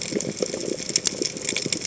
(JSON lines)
{"label": "biophony, chatter", "recorder": "HydroMoth"}